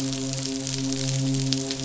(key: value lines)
label: biophony, midshipman
recorder: SoundTrap 500